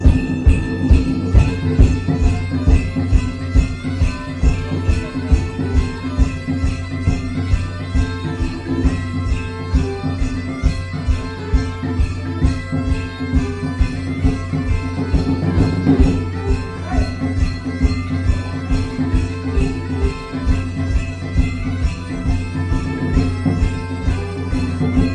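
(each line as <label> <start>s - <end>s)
Various instruments are playing. 0.0s - 25.1s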